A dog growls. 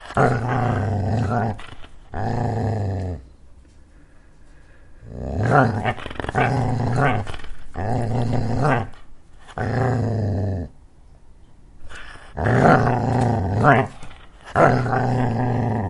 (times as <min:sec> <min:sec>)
0:00.2 0:01.6, 0:02.2 0:03.2, 0:05.2 0:08.9, 0:09.6 0:10.8, 0:12.4 0:15.9